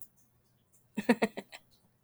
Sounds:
Laughter